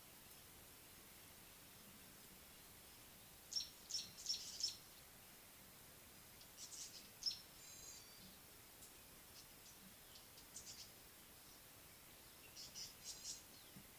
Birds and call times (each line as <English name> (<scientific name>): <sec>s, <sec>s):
Tawny-flanked Prinia (Prinia subflava): 4.5s, 12.7s
Gray-backed Camaroptera (Camaroptera brevicaudata): 7.8s